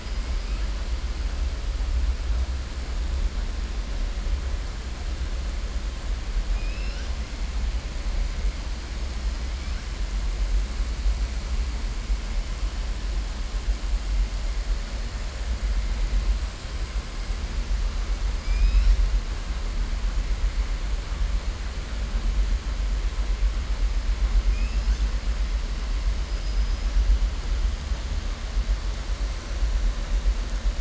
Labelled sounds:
6.5	7.1	killer whale, southern resident, 1.4 to 5.9 kHz
18.4	19.0	killer whale, southern resident, 1.9 to 5.8 kHz

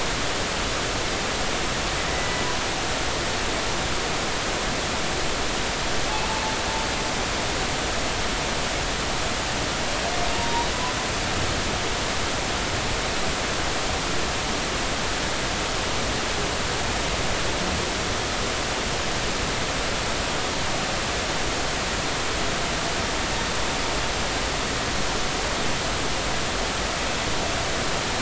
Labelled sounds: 2.1	2.4	humpback whale, 1.9 to 2.1 kHz
10.3	10.7	humpback whale, 0.86 to 0.99 kHz

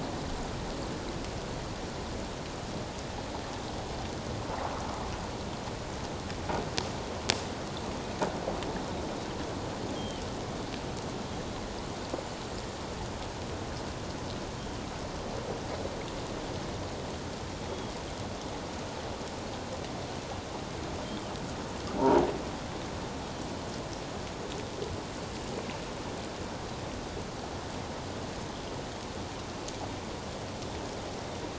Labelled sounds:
10.0	10.2	Pacific white-sided dolphin, 2.9 to 3.3 kHz
21.0	21.3	Pacific white-sided dolphin, 3.0 to 3.3 kHz

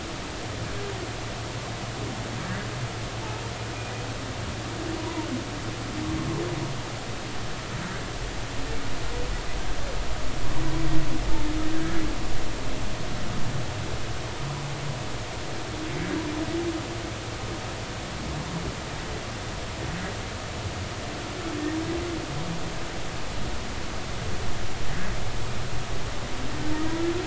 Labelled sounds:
5.0	5.3	humpback whale, 0.86 to 1.1 kHz
11.7	12.0	humpback whale, 1.5 to 1.8 kHz

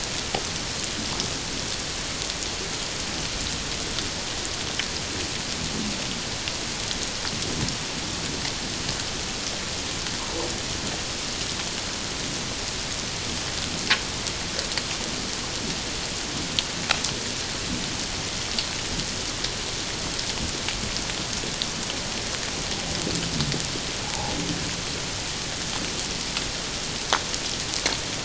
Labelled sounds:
24.0	24.3	humpback whale, 0.78 to 0.97 kHz

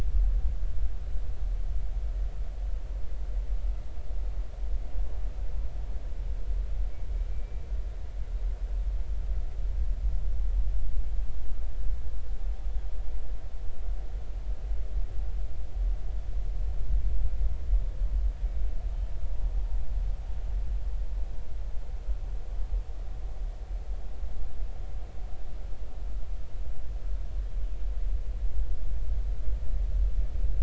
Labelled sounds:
7.3	7.6	killer whale, northern resident, 2.3 to 2.5 kHz

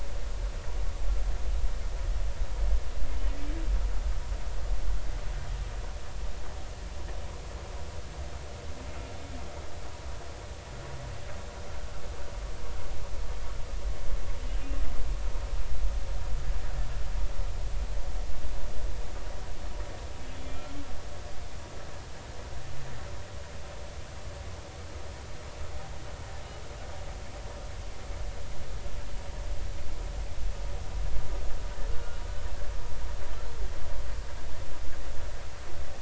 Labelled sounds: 20.3	20.7	humpback whale, 2.3 to 3.5 kHz
31.9	32.2	humpback whale, 1.3 to 1.5 kHz

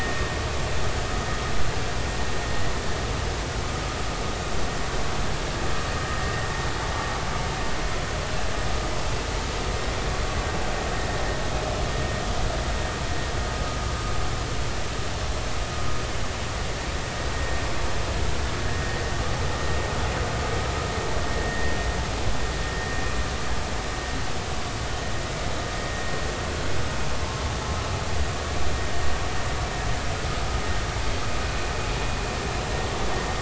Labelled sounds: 18.7	19.0	vessel noise, 1.8 to 2.0 kHz
21.4	21.7	vessel noise, 1.8 to 2.0 kHz

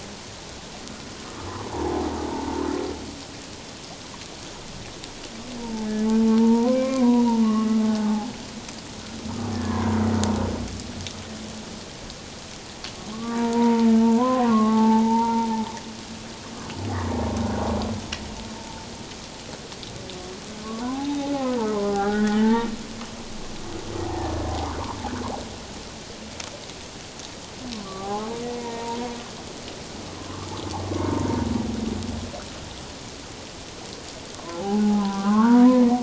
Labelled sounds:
1.7	2.7	humpback whale, 0.78 to 1.1 kHz
5.6	5.9	humpback whale, 0.81 to 1.0 kHz
6.4	8.3	humpback whale, 0.78 to 2.4 kHz
9.5	10.0	humpback whale, 0.91 to 1.8 kHz
13.1	15.5	humpback whale, 0.78 to 2.0 kHz
20.8	22.7	humpback whale, 0.78 to 2.0 kHz
24.0	24.3	humpback whale, 0.78 to 1.0 kHz
27.8	29.0	humpback whale, 0.78 to 1.2 kHz
30.2	31.4	humpback whale, 0.88 to 1.4 kHz
34.4	35.8	humpback whale, 0.78 to 1.7 kHz

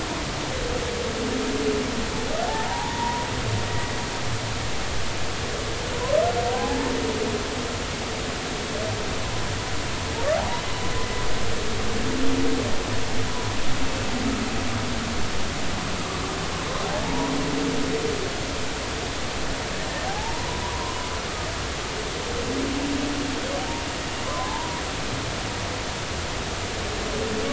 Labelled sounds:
2.5	3.3	humpback whale, 0.80 to 1.0 kHz
6.5	6.9	humpback whale, 0.80 to 0.93 kHz
17.0	17.3	humpback whale, 0.80 to 1.0 kHz
20.1	21.1	humpback whale, 0.80 to 1.1 kHz
24.3	24.8	humpback whale, 0.80 to 1.2 kHz

